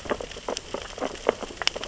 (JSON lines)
{"label": "biophony, sea urchins (Echinidae)", "recorder": "SoundTrap 600 or HydroMoth"}